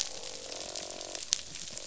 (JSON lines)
{"label": "biophony, croak", "recorder": "SoundTrap 500"}